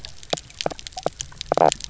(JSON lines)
{"label": "biophony, knock croak", "recorder": "SoundTrap 300"}